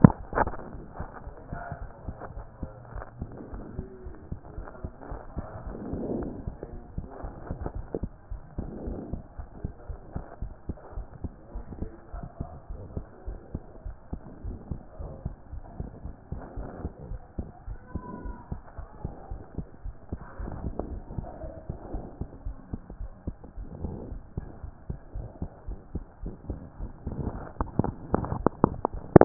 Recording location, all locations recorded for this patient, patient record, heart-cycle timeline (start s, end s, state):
aortic valve (AV)
aortic valve (AV)+pulmonary valve (PV)+tricuspid valve (TV)+mitral valve (MV)
#Age: Child
#Sex: Female
#Height: 111.0 cm
#Weight: 18.5 kg
#Pregnancy status: False
#Murmur: Absent
#Murmur locations: nan
#Most audible location: nan
#Systolic murmur timing: nan
#Systolic murmur shape: nan
#Systolic murmur grading: nan
#Systolic murmur pitch: nan
#Systolic murmur quality: nan
#Diastolic murmur timing: nan
#Diastolic murmur shape: nan
#Diastolic murmur grading: nan
#Diastolic murmur pitch: nan
#Diastolic murmur quality: nan
#Outcome: Normal
#Campaign: 2014 screening campaign
0.00	2.92	unannotated
2.92	3.04	S1
3.04	3.18	systole
3.18	3.32	S2
3.32	3.50	diastole
3.50	3.64	S1
3.64	3.76	systole
3.76	3.86	S2
3.86	4.04	diastole
4.04	4.14	S1
4.14	4.28	systole
4.28	4.38	S2
4.38	4.54	diastole
4.54	4.66	S1
4.66	4.82	systole
4.82	4.92	S2
4.92	5.08	diastole
5.08	5.20	S1
5.20	5.34	systole
5.34	5.46	S2
5.46	5.64	diastole
5.64	5.78	S1
5.78	5.86	systole
5.86	5.96	S2
5.96	6.12	diastole
6.12	6.30	S1
6.30	6.44	systole
6.44	6.58	S2
6.58	6.74	diastole
6.74	6.84	S1
6.84	6.96	systole
6.96	7.08	S2
7.08	7.24	diastole
7.24	7.36	S1
7.36	7.48	systole
7.48	7.58	S2
7.58	7.74	diastole
7.74	7.86	S1
7.86	8.00	systole
8.00	8.10	S2
8.10	8.30	diastole
8.30	8.40	S1
8.40	8.56	systole
8.56	8.70	S2
8.70	8.84	diastole
8.84	8.98	S1
8.98	9.10	systole
9.10	9.24	S2
9.24	9.38	diastole
9.38	9.46	S1
9.46	9.58	systole
9.58	9.74	S2
9.74	9.90	diastole
9.90	9.98	S1
9.98	10.14	systole
10.14	10.24	S2
10.24	10.40	diastole
10.40	10.52	S1
10.52	10.70	systole
10.70	10.76	S2
10.76	10.96	diastole
10.96	11.06	S1
11.06	11.22	systole
11.22	11.32	S2
11.32	11.54	diastole
11.54	11.64	S1
11.64	11.80	systole
11.80	11.94	S2
11.94	12.12	diastole
12.12	12.24	S1
12.24	12.36	systole
12.36	12.48	S2
12.48	12.68	diastole
12.68	12.82	S1
12.82	12.94	systole
12.94	13.06	S2
13.06	13.26	diastole
13.26	13.38	S1
13.38	13.52	systole
13.52	13.62	S2
13.62	13.84	diastole
13.84	13.96	S1
13.96	14.12	systole
14.12	14.22	S2
14.22	14.44	diastole
14.44	14.58	S1
14.58	14.70	systole
14.70	14.80	S2
14.80	14.98	diastole
14.98	15.12	S1
15.12	15.24	systole
15.24	15.36	S2
15.36	15.52	diastole
15.52	15.64	S1
15.64	15.78	systole
15.78	15.90	S2
15.90	16.04	diastole
16.04	16.14	S1
16.14	16.30	systole
16.30	16.42	S2
16.42	16.56	diastole
16.56	16.68	S1
16.68	16.80	systole
16.80	16.94	S2
16.94	17.08	diastole
17.08	17.20	S1
17.20	17.38	systole
17.38	17.48	S2
17.48	17.66	diastole
17.66	17.78	S1
17.78	17.94	systole
17.94	18.04	S2
18.04	18.24	diastole
18.24	18.38	S1
18.38	18.50	systole
18.50	18.62	S2
18.62	18.78	diastole
18.78	18.88	S1
18.88	19.00	systole
19.00	19.12	S2
19.12	19.30	diastole
19.30	19.44	S1
19.44	19.58	systole
19.58	19.68	S2
19.68	19.84	diastole
19.84	19.94	S1
19.94	20.12	systole
20.12	20.22	S2
20.22	20.38	diastole
20.38	20.54	S1
20.54	20.64	systole
20.64	20.76	S2
20.76	20.90	diastole
20.90	21.06	S1
21.06	21.16	systole
21.16	21.32	S2
21.32	21.46	diastole
21.46	21.56	S1
21.56	21.68	systole
21.68	21.80	S2
21.80	21.94	diastole
21.94	22.08	S1
22.08	22.20	systole
22.20	22.28	S2
22.28	22.46	diastole
22.46	22.56	S1
22.56	22.72	systole
22.72	22.82	S2
22.82	22.98	diastole
22.98	23.12	S1
23.12	23.26	systole
23.26	23.36	S2
23.36	23.58	diastole
23.58	23.68	S1
23.68	23.80	systole
23.80	23.94	S2
23.94	24.08	diastole
24.08	24.22	S1
24.22	24.38	systole
24.38	24.48	S2
24.48	24.64	diastole
24.64	24.74	S1
24.74	24.90	systole
24.90	24.98	S2
24.98	25.16	diastole
25.16	25.28	S1
25.28	25.42	systole
25.42	25.50	S2
25.50	25.68	diastole
25.68	25.82	S1
25.82	25.94	systole
25.94	26.08	S2
26.08	26.22	diastole
26.22	26.34	S1
26.34	26.48	systole
26.48	26.60	S2
26.60	26.80	diastole
26.80	26.94	S1
26.94	27.18	systole
27.18	27.25	S2
27.25	29.25	unannotated